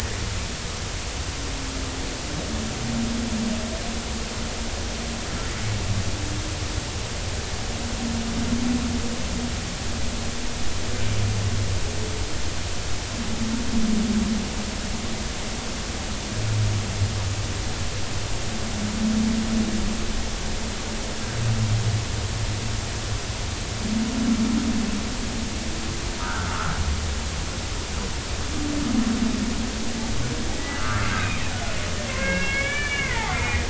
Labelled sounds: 26.2	26.7	humpback whale, 1.2 to 1.6 kHz
30.8	31.4	humpback whale, 1.1 to 2.6 kHz
32.1	33.6	humpback whale, 0.80 to 3.0 kHz

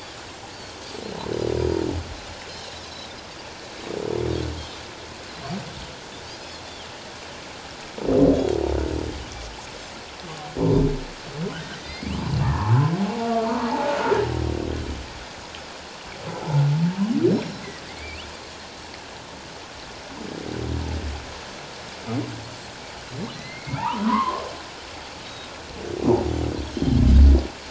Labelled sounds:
0.5	1.0	Pacific white-sided dolphin, 4.2 to 7.9 kHz
2.5	3.1	Pacific white-sided dolphin, 3.8 to 4.3 kHz
11.8	12.9	humpback whale, 0.81 to 4.6 kHz
13.2	13.5	humpback whale, 1.0 to 1.2 kHz
17.9	18.3	humpback whale, 2.0 to 3.2 kHz
23.3	24.4	humpback whale, 0.81 to 4.4 kHz
25.2	25.5	Pacific white-sided dolphin, 3.7 to 3.9 kHz
26.6	27.0	Pacific white-sided dolphin, 3.0 to 6.8 kHz

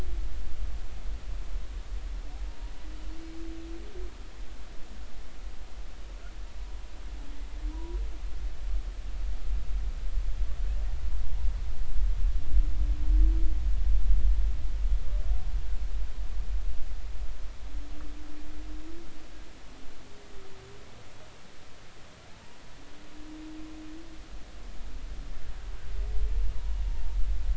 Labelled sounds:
7.7	8.0	humpback whale, 0.90 to 1.0 kHz

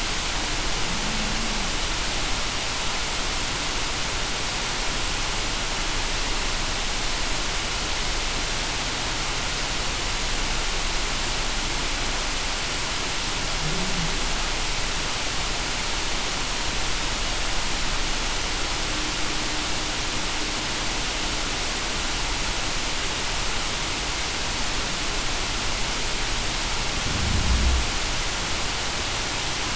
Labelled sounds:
1.0	1.3	humpback whale, 0.19 to 0.23 kHz

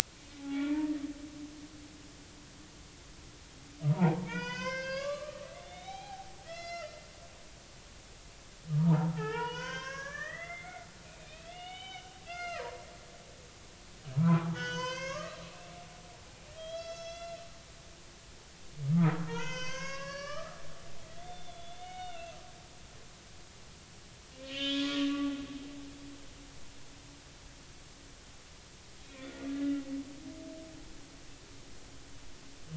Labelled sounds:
0.4	0.9	humpback whale, 0.80 to 3.5 kHz
3.9	7.0	humpback whale, 0.80 to 6.9 kHz
8.7	12.8	humpback whale, 0.80 to 5.0 kHz
14.1	15.4	humpback whale, 0.80 to 6.7 kHz
16.5	17.4	humpback whale, 1.2 to 6.1 kHz
19.3	20.6	humpback whale, 0.86 to 6.8 kHz
21.2	22.4	humpback whale, 1.3 to 3.7 kHz
24.4	25.1	humpback whale, 1.0 to 4.8 kHz
29.0	29.3	humpback whale, 2.3 to 2.5 kHz

